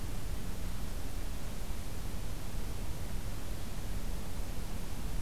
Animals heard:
forest ambience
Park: Acadia National Park